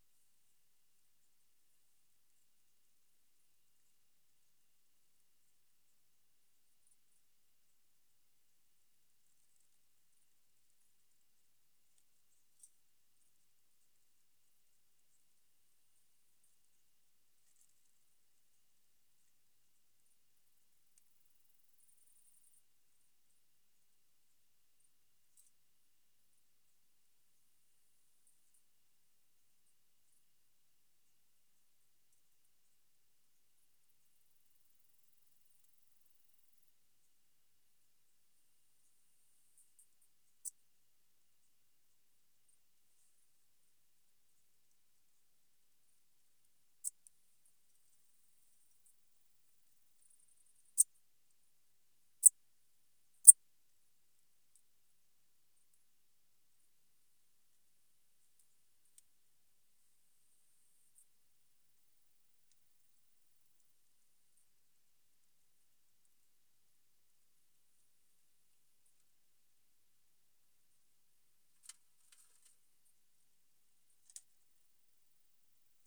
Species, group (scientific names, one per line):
Eupholidoptera garganica
Orthoptera